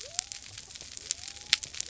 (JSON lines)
{"label": "biophony", "recorder": "SoundTrap 300"}